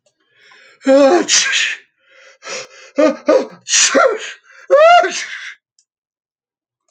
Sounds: Sneeze